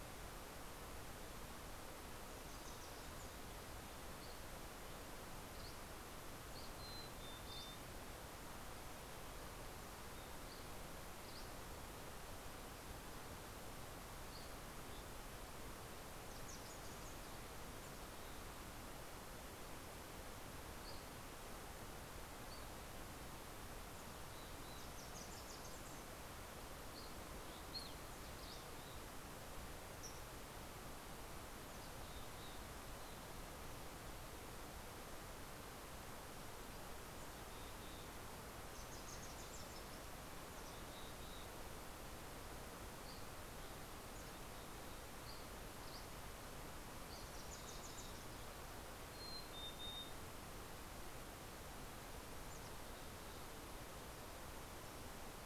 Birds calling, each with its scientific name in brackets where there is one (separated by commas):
Wilson's Warbler (Cardellina pusilla), Evening Grosbeak (Coccothraustes vespertinus), Mountain Chickadee (Poecile gambeli), Dusky Flycatcher (Empidonax oberholseri)